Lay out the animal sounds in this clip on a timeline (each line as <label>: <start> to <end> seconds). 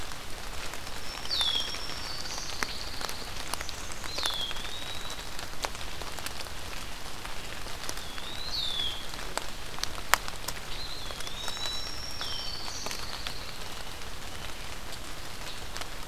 Black-throated Green Warbler (Setophaga virens): 0.5 to 2.6 seconds
Red-winged Blackbird (Agelaius phoeniceus): 1.1 to 1.8 seconds
Pine Warbler (Setophaga pinus): 2.0 to 3.4 seconds
Eastern Wood-Pewee (Contopus virens): 3.9 to 5.2 seconds
Red-winged Blackbird (Agelaius phoeniceus): 4.0 to 4.6 seconds
Eastern Wood-Pewee (Contopus virens): 7.9 to 8.5 seconds
Red-winged Blackbird (Agelaius phoeniceus): 8.4 to 9.1 seconds
Eastern Wood-Pewee (Contopus virens): 10.6 to 12.1 seconds
Black-throated Green Warbler (Setophaga virens): 11.1 to 12.9 seconds
Red-winged Blackbird (Agelaius phoeniceus): 12.0 to 12.6 seconds
Pine Warbler (Setophaga pinus): 12.4 to 13.7 seconds